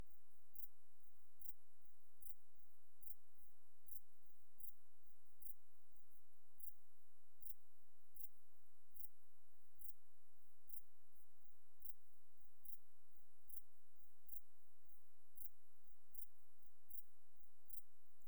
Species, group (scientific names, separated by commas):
Pholidoptera griseoaptera, Orthoptera